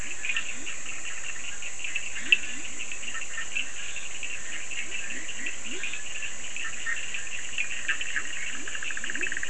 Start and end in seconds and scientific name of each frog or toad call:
0.0	6.1	Scinax perereca
0.0	9.4	Boana bischoffi
0.0	9.4	Leptodactylus latrans
0.1	0.5	Sphaenorhynchus surdus
1.7	2.5	Sphaenorhynchus surdus
7.5	8.1	Sphaenorhynchus surdus